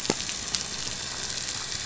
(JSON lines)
{"label": "biophony", "recorder": "SoundTrap 500"}